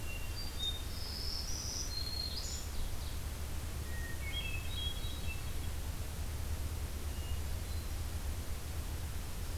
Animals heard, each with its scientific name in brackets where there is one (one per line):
Hermit Thrush (Catharus guttatus)
Ovenbird (Seiurus aurocapilla)
Black-throated Green Warbler (Setophaga virens)